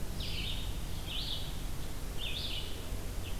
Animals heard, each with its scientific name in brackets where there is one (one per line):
Red-eyed Vireo (Vireo olivaceus)